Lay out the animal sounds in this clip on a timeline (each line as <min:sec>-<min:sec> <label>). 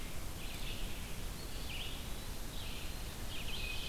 0:00.0-0:03.9 Red-eyed Vireo (Vireo olivaceus)
0:01.3-0:02.6 Eastern Wood-Pewee (Contopus virens)